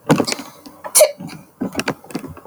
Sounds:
Sneeze